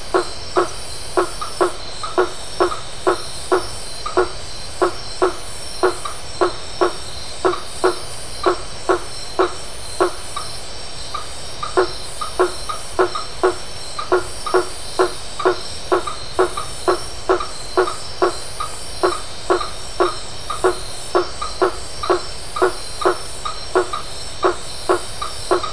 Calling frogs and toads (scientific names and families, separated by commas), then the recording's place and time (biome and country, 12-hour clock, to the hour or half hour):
Boana faber (Hylidae)
Atlantic Forest, Brazil, ~8pm